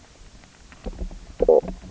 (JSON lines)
{"label": "biophony, knock croak", "recorder": "SoundTrap 300"}